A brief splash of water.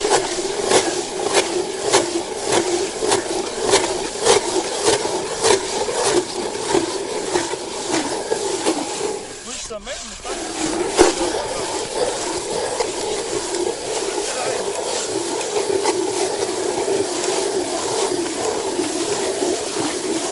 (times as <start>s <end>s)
8.6s 9.1s